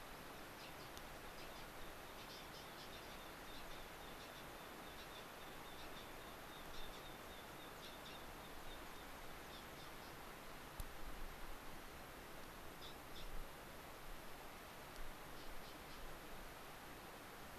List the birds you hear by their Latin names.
Anthus rubescens